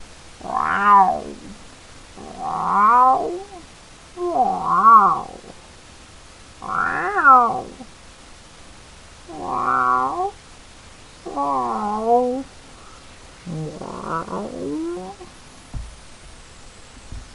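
A large cat meows repeatedly in a strange tone. 0.0 - 8.1
A large cat meows repeatedly in a strange tone. 9.1 - 17.3

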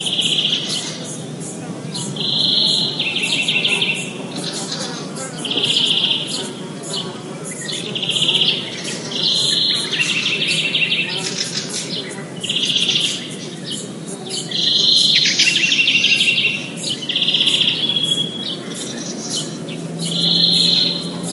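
A flock of birds chirping loudly at varying distances. 0.0 - 21.3
Buzzing of flying insects nearby. 0.0 - 21.3

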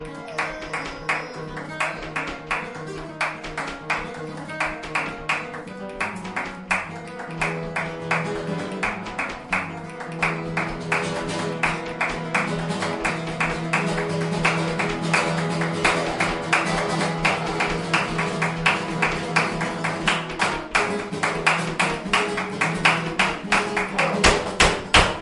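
A guitar plays fast-paced flamenco music indoors, gradually increasing in intensity toward the end. 0.0 - 25.2
Sharp, rhythmic hand claps accompany flamenco music, gradually increasing in intensity. 0.0 - 25.2
A high-pitched whining sound is heard indoors. 0.2 - 1.8
A person makes a short, subdued exclamation. 24.0 - 24.2

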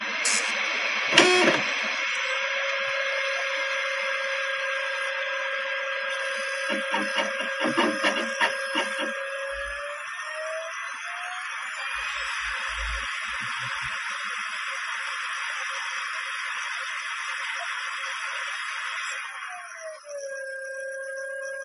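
A computer reads a CD, producing irregular electronic and whirring noises. 0.0 - 21.6

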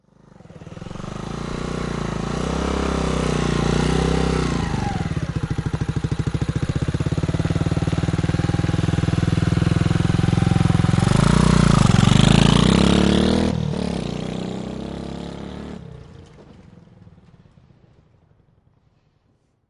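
The engine of a motorcycle approaches. 0.0 - 4.9
The engine of a motorcycle is running. 0.0 - 17.3
The engine of a stationary motorcycle is running. 4.9 - 7.1
The engine of a motorcycle is running slowly. 7.1 - 11.1
The engine of a motorcycle accelerates and moves away. 11.1 - 16.8

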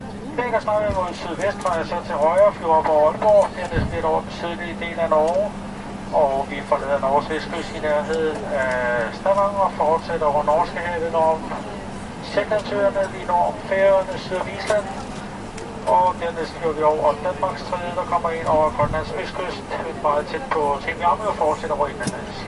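An announcement is being made over a PA system. 0.0 - 22.5
Constant whirring sound. 0.0 - 22.5

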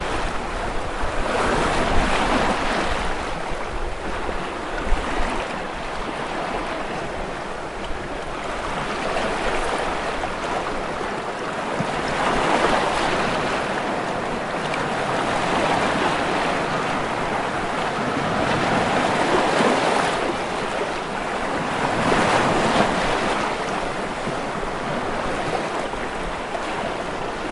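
Waves softly crashing against the shoreline repetitively. 0.0 - 27.5

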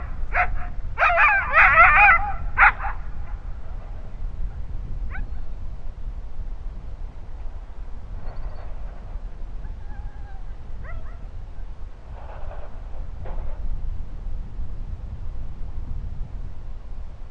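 A dog barks loudly and repeatedly outside with pauses between the barks. 0.0 - 2.8
A dog barks once in the distance. 5.1 - 5.3
A sled sliding down a slope in the distance. 8.2 - 9.3
A dog whines in the distance. 9.5 - 10.7
A dog barks once in the distance. 10.7 - 11.4
A sled sliding down a slope in the distance. 12.0 - 13.8

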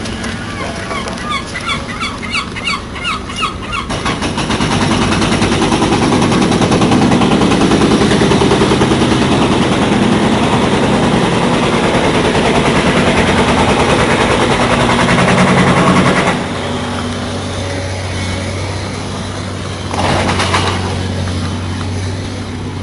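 Construction site ambient with a seagull screeching. 0.0 - 3.9
Prolonged loud industrial machine noises. 3.9 - 16.4
Ambient sounds of a construction site with a constant hum. 16.4 - 22.8

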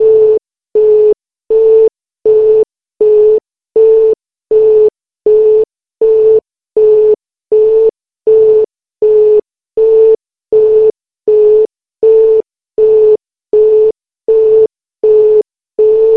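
An alarm sounds rhythmically and repeatedly. 0.0 - 16.2

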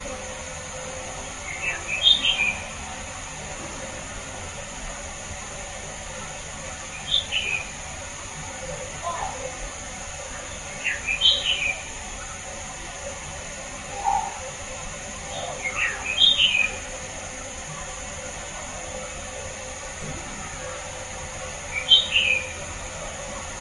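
A bird chirps loudly and rhythmically outdoors. 1.6 - 2.6
A bird chirps loudly and rhythmically outdoors. 6.8 - 7.8
A bird emits a deep call in the distance. 8.9 - 9.6
A bird chirps loudly and rhythmically outdoors. 10.7 - 11.9
A bird chirps in the distance. 13.7 - 14.5
A bird chirps loudly and rhythmically outdoors. 15.6 - 16.8
A bird chirps loudly and rhythmically outdoors. 21.6 - 22.6

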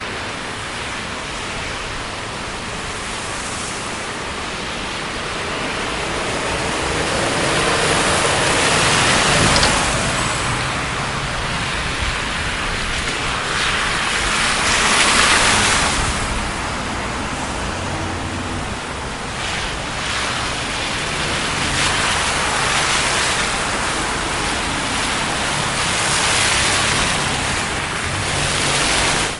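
A mixture of car engines passing on a wet road. 0.1 - 29.4
A loud motorcycle engine. 7.6 - 9.4

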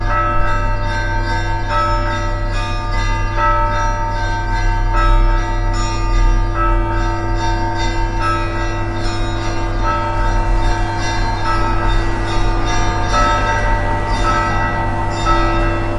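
Church bells are ringing in the morning. 0.0 - 16.0
The wind is rising. 9.9 - 16.0

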